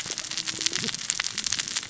{"label": "biophony, cascading saw", "recorder": "SoundTrap 600 or HydroMoth"}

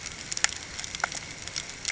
{"label": "ambient", "recorder": "HydroMoth"}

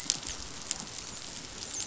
{"label": "biophony, dolphin", "recorder": "SoundTrap 500"}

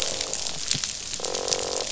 {"label": "biophony, croak", "recorder": "SoundTrap 500"}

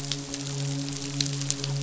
{"label": "biophony, midshipman", "recorder": "SoundTrap 500"}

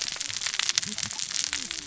{"label": "biophony, cascading saw", "recorder": "SoundTrap 600 or HydroMoth"}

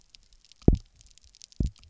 {"label": "biophony, double pulse", "recorder": "SoundTrap 300"}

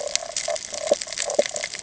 {"label": "ambient", "recorder": "HydroMoth"}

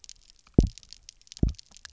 {"label": "biophony, double pulse", "recorder": "SoundTrap 300"}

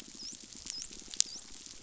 {"label": "biophony, dolphin", "recorder": "SoundTrap 500"}
{"label": "biophony", "recorder": "SoundTrap 500"}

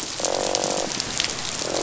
{"label": "biophony, croak", "recorder": "SoundTrap 500"}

